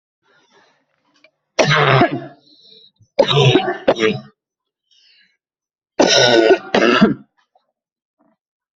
{"expert_labels": [{"quality": "good", "cough_type": "dry", "dyspnea": false, "wheezing": false, "stridor": false, "choking": false, "congestion": false, "nothing": true, "diagnosis": "COVID-19", "severity": "unknown"}], "age": 56, "gender": "female", "respiratory_condition": false, "fever_muscle_pain": false, "status": "symptomatic"}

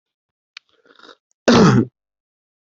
{"expert_labels": [{"quality": "good", "cough_type": "wet", "dyspnea": false, "wheezing": false, "stridor": false, "choking": false, "congestion": false, "nothing": false, "diagnosis": "healthy cough", "severity": "pseudocough/healthy cough"}], "age": 37, "gender": "male", "respiratory_condition": true, "fever_muscle_pain": false, "status": "healthy"}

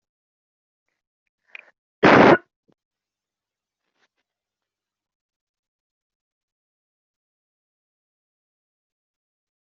{"expert_labels": [{"quality": "poor", "cough_type": "unknown", "dyspnea": false, "wheezing": false, "stridor": false, "choking": false, "congestion": false, "nothing": true, "diagnosis": "healthy cough", "severity": "pseudocough/healthy cough"}], "age": 20, "gender": "female", "respiratory_condition": false, "fever_muscle_pain": true, "status": "symptomatic"}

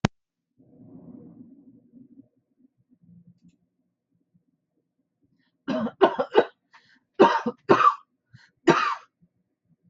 {"expert_labels": [{"quality": "ok", "cough_type": "dry", "dyspnea": false, "wheezing": false, "stridor": false, "choking": false, "congestion": false, "nothing": true, "diagnosis": "upper respiratory tract infection", "severity": "mild"}], "age": 57, "gender": "female", "respiratory_condition": false, "fever_muscle_pain": false, "status": "healthy"}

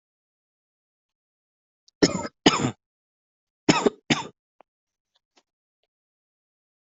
{"expert_labels": [{"quality": "good", "cough_type": "wet", "dyspnea": false, "wheezing": true, "stridor": false, "choking": false, "congestion": false, "nothing": false, "diagnosis": "lower respiratory tract infection", "severity": "mild"}]}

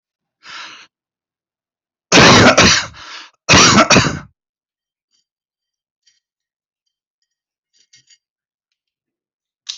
{"expert_labels": [{"quality": "ok", "cough_type": "wet", "dyspnea": false, "wheezing": false, "stridor": false, "choking": false, "congestion": false, "nothing": true, "diagnosis": "lower respiratory tract infection", "severity": "mild"}], "age": 38, "gender": "male", "respiratory_condition": true, "fever_muscle_pain": false, "status": "symptomatic"}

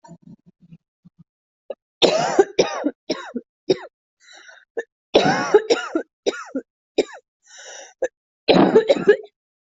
{"expert_labels": [{"quality": "ok", "cough_type": "wet", "dyspnea": false, "wheezing": false, "stridor": false, "choking": false, "congestion": false, "nothing": true, "diagnosis": "lower respiratory tract infection", "severity": "mild"}], "age": 42, "gender": "female", "respiratory_condition": true, "fever_muscle_pain": false, "status": "healthy"}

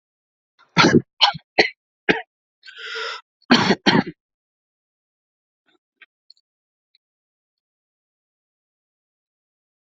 {"expert_labels": [{"quality": "good", "cough_type": "wet", "dyspnea": false, "wheezing": false, "stridor": false, "choking": false, "congestion": false, "nothing": true, "diagnosis": "upper respiratory tract infection", "severity": "mild"}], "age": 30, "gender": "male", "respiratory_condition": false, "fever_muscle_pain": false, "status": "symptomatic"}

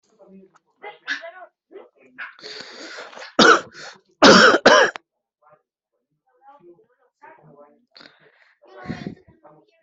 {"expert_labels": [{"quality": "ok", "cough_type": "wet", "dyspnea": true, "wheezing": false, "stridor": false, "choking": false, "congestion": false, "nothing": false, "diagnosis": "lower respiratory tract infection", "severity": "mild"}], "age": 18, "gender": "male", "respiratory_condition": false, "fever_muscle_pain": false, "status": "symptomatic"}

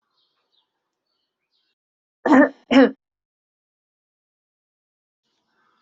{"expert_labels": [{"quality": "no cough present", "dyspnea": false, "wheezing": false, "stridor": false, "choking": false, "congestion": false, "nothing": false}], "age": 33, "gender": "female", "respiratory_condition": false, "fever_muscle_pain": false, "status": "COVID-19"}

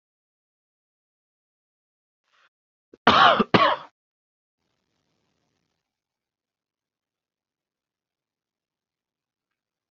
{"expert_labels": [{"quality": "good", "cough_type": "wet", "dyspnea": false, "wheezing": false, "stridor": false, "choking": false, "congestion": false, "nothing": true, "diagnosis": "healthy cough", "severity": "pseudocough/healthy cough"}], "gender": "male", "respiratory_condition": false, "fever_muscle_pain": false, "status": "symptomatic"}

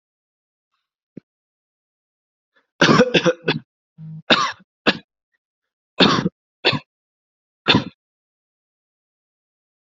{"expert_labels": [{"quality": "good", "cough_type": "dry", "dyspnea": false, "wheezing": false, "stridor": false, "choking": false, "congestion": false, "nothing": true, "diagnosis": "COVID-19", "severity": "mild"}], "age": 19, "gender": "male", "respiratory_condition": false, "fever_muscle_pain": false, "status": "symptomatic"}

